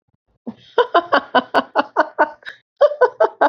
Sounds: Laughter